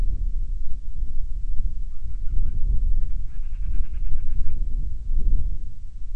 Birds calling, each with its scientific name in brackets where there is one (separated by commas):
Band-rumped Storm-Petrel (Hydrobates castro)